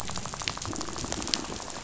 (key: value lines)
label: biophony, rattle
recorder: SoundTrap 500